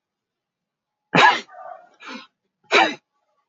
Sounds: Sneeze